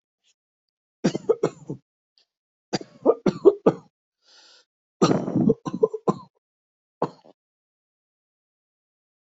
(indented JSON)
{
  "expert_labels": [
    {
      "quality": "good",
      "cough_type": "dry",
      "dyspnea": false,
      "wheezing": false,
      "stridor": false,
      "choking": false,
      "congestion": false,
      "nothing": true,
      "diagnosis": "upper respiratory tract infection",
      "severity": "mild"
    }
  ],
  "age": 39,
  "gender": "male",
  "respiratory_condition": true,
  "fever_muscle_pain": true,
  "status": "symptomatic"
}